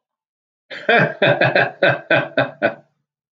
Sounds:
Laughter